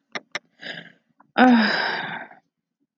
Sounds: Sigh